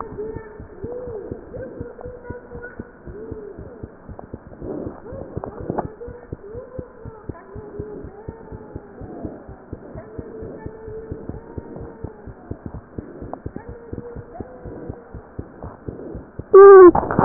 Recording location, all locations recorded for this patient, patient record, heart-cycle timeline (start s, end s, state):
pulmonary valve (PV)
pulmonary valve (PV)+tricuspid valve (TV)+mitral valve (MV)
#Age: Child
#Sex: Male
#Height: nan
#Weight: nan
#Pregnancy status: False
#Murmur: Absent
#Murmur locations: nan
#Most audible location: nan
#Systolic murmur timing: nan
#Systolic murmur shape: nan
#Systolic murmur grading: nan
#Systolic murmur pitch: nan
#Systolic murmur quality: nan
#Diastolic murmur timing: nan
#Diastolic murmur shape: nan
#Diastolic murmur grading: nan
#Diastolic murmur pitch: nan
#Diastolic murmur quality: nan
#Outcome: Normal
#Campaign: 2015 screening campaign
0.00	5.99	unannotated
5.99	6.06	diastole
6.06	6.16	S1
6.16	6.28	systole
6.28	6.40	S2
6.40	6.51	diastole
6.51	6.63	S1
6.63	6.74	systole
6.74	6.85	S2
6.85	7.02	diastole
7.02	7.12	S1
7.12	7.24	systole
7.24	7.36	S2
7.36	7.54	diastole
7.54	7.63	S1
7.63	7.76	systole
7.76	7.85	S2
7.85	8.01	diastole
8.01	8.12	S1
8.12	8.26	systole
8.26	8.36	S2
8.36	8.50	diastole
8.50	8.59	S1
8.59	8.71	systole
8.71	8.80	S2
8.80	9.00	diastole
9.00	9.14	S1
9.14	9.22	systole
9.22	9.32	S2
9.32	9.47	diastole
9.47	9.56	S1
9.56	9.69	systole
9.69	9.78	S2
9.78	9.94	diastole
9.94	10.06	S1
10.06	10.14	systole
10.14	10.28	S2
10.28	10.40	diastole
10.40	10.49	S1
10.49	10.62	systole
10.62	10.72	S2
10.72	10.86	diastole
10.86	11.00	S1
11.00	11.10	systole
11.10	11.24	S2
11.24	11.33	diastole
11.33	11.41	S1
11.41	11.54	systole
11.54	11.62	S2
11.62	11.76	diastole
11.76	11.90	S1
11.90	12.02	systole
12.02	12.14	S2
12.14	12.26	diastole
12.26	17.25	unannotated